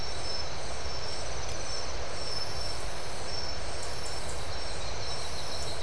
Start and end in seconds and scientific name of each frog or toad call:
none